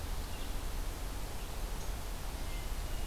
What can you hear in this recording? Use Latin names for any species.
Vireo olivaceus, Catharus guttatus